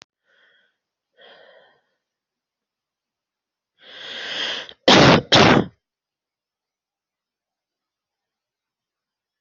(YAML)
expert_labels:
- quality: ok
  cough_type: dry
  dyspnea: false
  wheezing: false
  stridor: false
  choking: false
  congestion: false
  nothing: true
  diagnosis: healthy cough
  severity: pseudocough/healthy cough
age: 36
gender: female
respiratory_condition: true
fever_muscle_pain: false
status: symptomatic